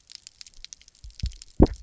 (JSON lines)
{"label": "biophony, double pulse", "recorder": "SoundTrap 300"}